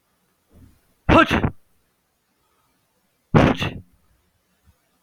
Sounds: Sneeze